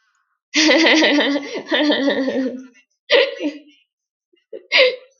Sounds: Laughter